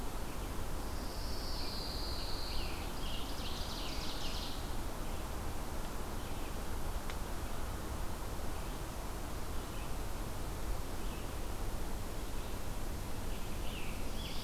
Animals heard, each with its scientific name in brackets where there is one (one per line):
Scarlet Tanager (Piranga olivacea)
Pine Warbler (Setophaga pinus)
Red-eyed Vireo (Vireo olivaceus)
Ovenbird (Seiurus aurocapilla)